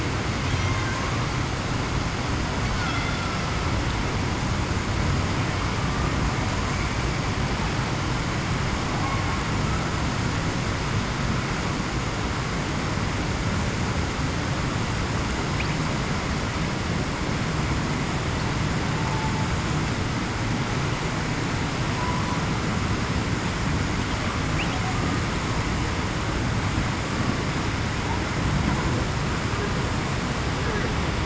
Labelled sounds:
19.0	19.3	humpback whale, 0.84 to 0.91 kHz

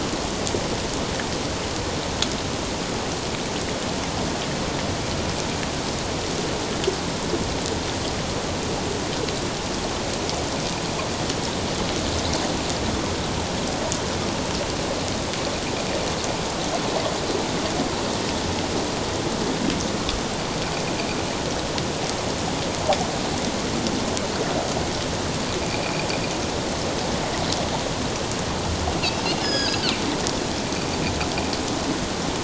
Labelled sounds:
25.7	26.0	Pacific white-sided dolphin, 2.2 to 2.6 kHz
29.4	29.8	Pacific white-sided dolphin, 1.5 to 6.9 kHz

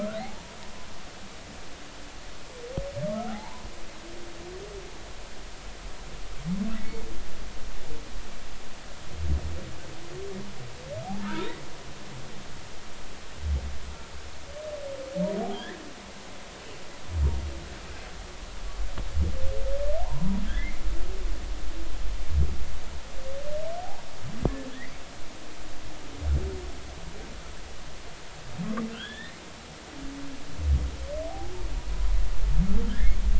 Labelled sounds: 0.2	0.6	humpback whale, 0.80 to 0.99 kHz
3.1	3.7	humpback whale, 0.80 to 1.5 kHz
6.8	7.0	humpback whale, 2.1 to 2.3 kHz
11.2	11.5	humpback whale, 1.2 to 1.7 kHz
15.4	15.7	humpback whale, 0.80 to 1.0 kHz
20.0	20.8	humpback whale, 0.80 to 2.3 kHz
28.9	29.3	humpback whale, 1.3 to 3.8 kHz
31.3	31.5	humpback whale, 0.80 to 0.86 kHz
32.9	33.2	humpback whale, 1.5 to 2.2 kHz

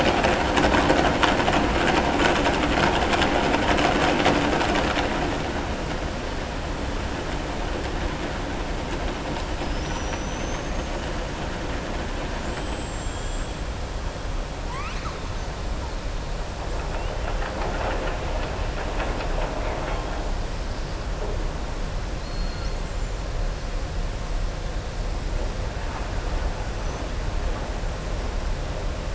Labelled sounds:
9.6	11.0	killer whale, southern resident, 5.1 to 6.8 kHz
12.3	13.6	killer whale, southern resident, 6.9 to 8.0 kHz
14.6	15.1	killer whale, southern resident, 0.99 to 6.3 kHz

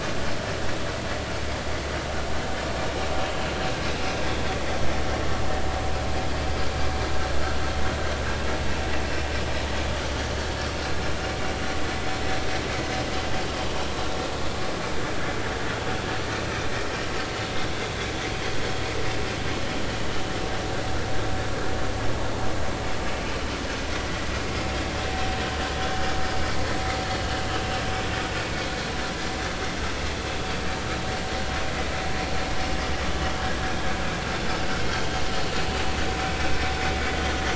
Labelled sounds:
25.7	26.0	vessel noise, 3.3 to 3.5 kHz
27.6	27.8	vessel noise, 2.7 to 2.8 kHz

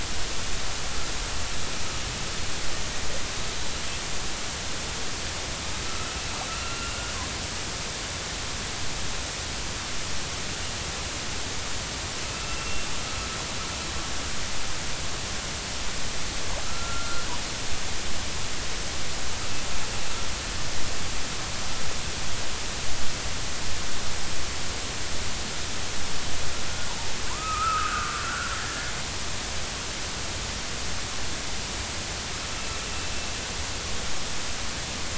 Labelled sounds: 5.9	7.2	killer whale, northern resident, A clan, AB subclan, 1.2 to 2.8 kHz
12.3	12.9	killer whale, northern resident, A clan, AB subclan, 1.2 to 2.8 kHz
16.6	17.3	killer whale, northern resident, A clan, AB subclan, 1.2 to 1.6 kHz
27.3	28.9	killer whale, northern resident, A clan, AB subclan, 0.90 to 1.8 kHz

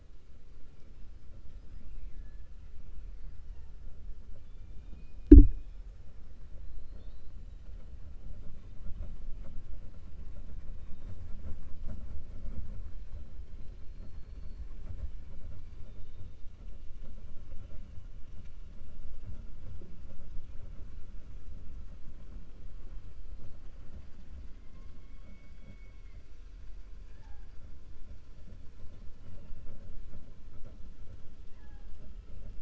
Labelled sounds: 1.7	2.4	killer whale, 1.7 to 2.8 kHz
13.5	14.6	killer whale, 3.2 to 4.9 kHz

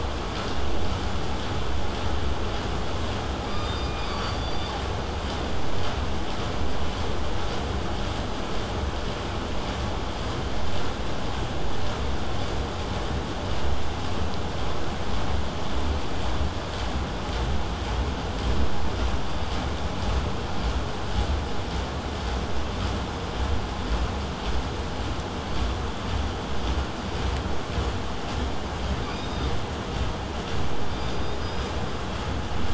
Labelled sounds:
3.4	4.8	killer whale, southern resident, K pod, call S17, 0.89 to 8.0 kHz
25.4	25.7	killer whale, southern resident, 4.1 to 4.8 kHz
29.0	29.5	killer whale, southern resident, K pod, call S16, 2.1 to 8.0 kHz
30.9	31.8	killer whale, southern resident, K pod, call S16, 2.1 to 5.1 kHz

